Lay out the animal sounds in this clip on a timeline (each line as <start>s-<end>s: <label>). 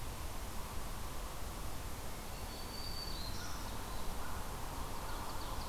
0.0s-5.7s: Yellow-bellied Sapsucker (Sphyrapicus varius)
2.2s-3.7s: Black-throated Green Warbler (Setophaga virens)
4.8s-5.7s: Ovenbird (Seiurus aurocapilla)